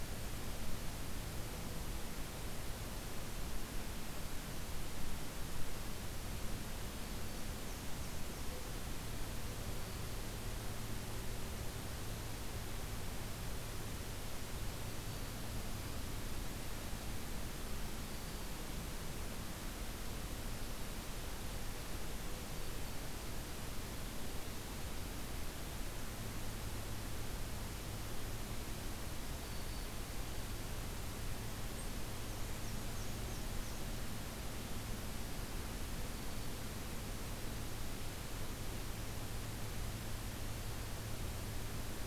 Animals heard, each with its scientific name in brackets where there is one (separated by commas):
Black-and-white Warbler (Mniotilta varia), Black-throated Green Warbler (Setophaga virens)